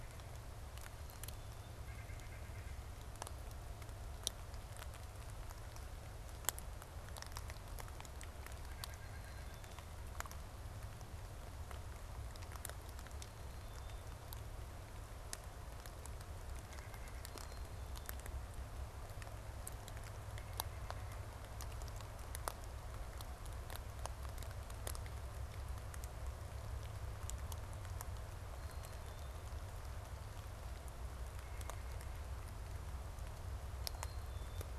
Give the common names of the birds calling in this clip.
White-breasted Nuthatch, Black-capped Chickadee